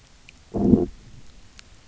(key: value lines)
label: biophony, low growl
recorder: SoundTrap 300